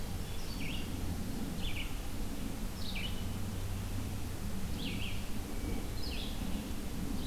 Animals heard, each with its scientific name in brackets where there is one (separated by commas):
Red-eyed Vireo (Vireo olivaceus), Hermit Thrush (Catharus guttatus)